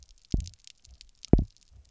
{"label": "biophony, double pulse", "recorder": "SoundTrap 300"}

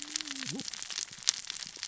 {"label": "biophony, cascading saw", "recorder": "SoundTrap 600 or HydroMoth"}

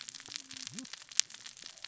{"label": "biophony, cascading saw", "recorder": "SoundTrap 600 or HydroMoth"}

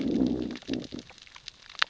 {"label": "biophony, growl", "recorder": "SoundTrap 600 or HydroMoth"}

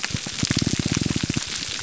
{"label": "biophony, pulse", "recorder": "SoundTrap 300"}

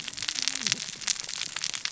{"label": "biophony, cascading saw", "recorder": "SoundTrap 600 or HydroMoth"}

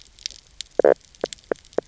{"label": "biophony, knock croak", "recorder": "SoundTrap 300"}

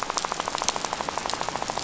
{"label": "biophony, rattle", "recorder": "SoundTrap 500"}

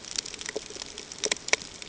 {"label": "ambient", "recorder": "HydroMoth"}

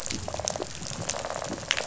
{"label": "biophony, rattle response", "recorder": "SoundTrap 500"}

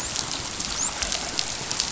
{"label": "biophony, dolphin", "recorder": "SoundTrap 500"}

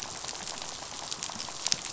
{"label": "biophony, rattle", "recorder": "SoundTrap 500"}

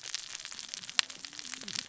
{"label": "biophony, cascading saw", "recorder": "SoundTrap 600 or HydroMoth"}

